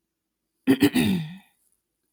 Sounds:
Throat clearing